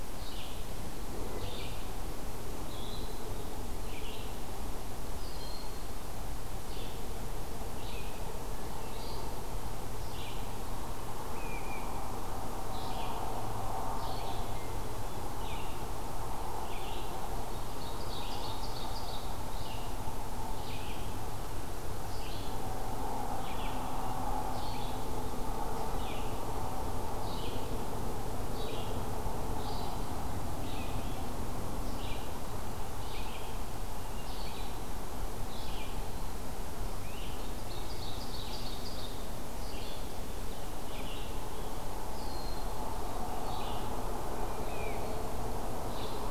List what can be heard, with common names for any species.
Red-eyed Vireo, Broad-winged Hawk, Great Crested Flycatcher, Ovenbird, Hermit Thrush